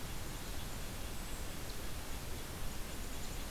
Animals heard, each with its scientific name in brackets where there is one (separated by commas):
Red-breasted Nuthatch (Sitta canadensis)